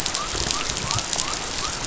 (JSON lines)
{"label": "biophony", "recorder": "SoundTrap 500"}